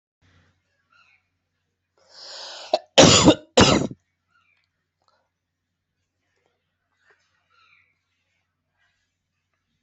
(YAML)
expert_labels:
- quality: good
  cough_type: wet
  dyspnea: false
  wheezing: false
  stridor: false
  choking: false
  congestion: false
  nothing: true
  diagnosis: lower respiratory tract infection
  severity: mild
age: 25
gender: male
respiratory_condition: true
fever_muscle_pain: true
status: healthy